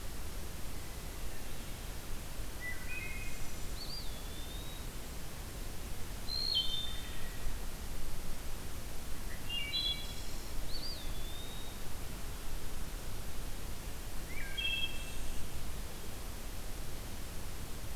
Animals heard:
Eastern Wood-Pewee (Contopus virens), Wood Thrush (Hylocichla mustelina)

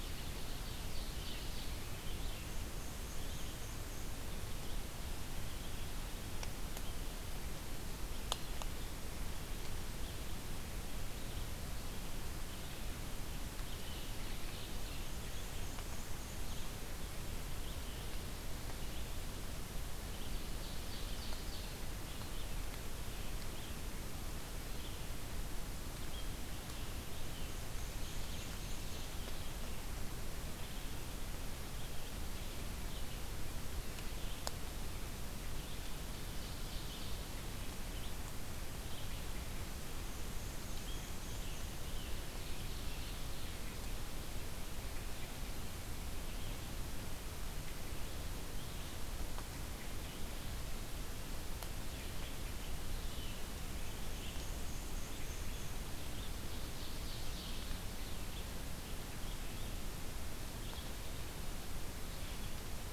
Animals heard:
American Robin (Turdus migratorius), Red-eyed Vireo (Vireo olivaceus), Black-and-white Warbler (Mniotilta varia), Ovenbird (Seiurus aurocapilla)

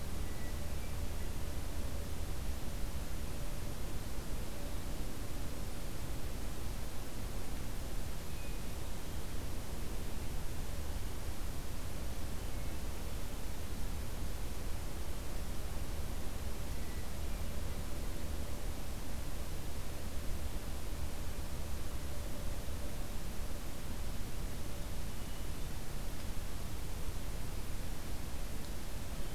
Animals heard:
Hermit Thrush (Catharus guttatus)

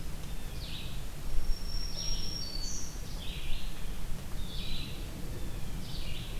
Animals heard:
Red-eyed Vireo (Vireo olivaceus), Black-throated Green Warbler (Setophaga virens), Eastern Wood-Pewee (Contopus virens)

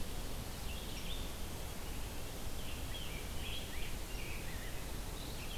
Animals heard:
Rose-breasted Grosbeak (Pheucticus ludovicianus), Red-eyed Vireo (Vireo olivaceus)

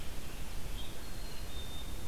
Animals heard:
Black-capped Chickadee (Poecile atricapillus), American Robin (Turdus migratorius), Red-eyed Vireo (Vireo olivaceus)

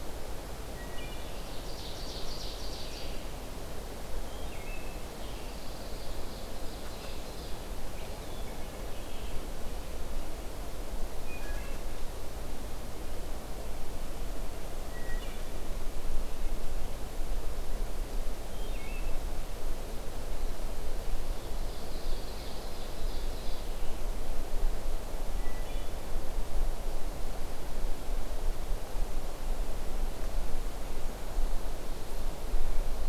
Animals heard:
Red-eyed Vireo (Vireo olivaceus), Pine Warbler (Setophaga pinus), Wood Thrush (Hylocichla mustelina), Eastern Wood-Pewee (Contopus virens), Ovenbird (Seiurus aurocapilla)

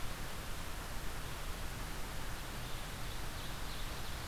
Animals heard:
Red-eyed Vireo (Vireo olivaceus), Ovenbird (Seiurus aurocapilla)

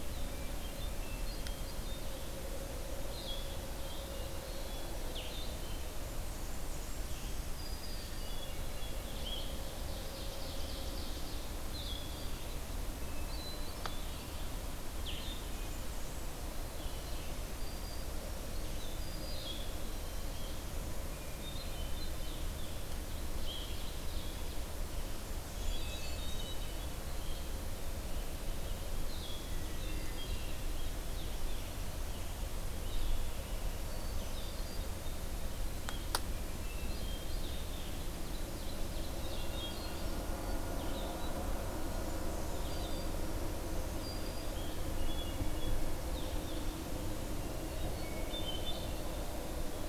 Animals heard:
Ovenbird (Seiurus aurocapilla), Blue-headed Vireo (Vireo solitarius), Blackburnian Warbler (Setophaga fusca), Hermit Thrush (Catharus guttatus), Black-throated Green Warbler (Setophaga virens)

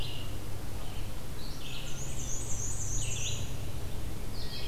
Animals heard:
Red-eyed Vireo (Vireo olivaceus), Black-and-white Warbler (Mniotilta varia)

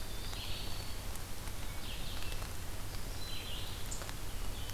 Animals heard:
Eastern Wood-Pewee (Contopus virens), Red-eyed Vireo (Vireo olivaceus)

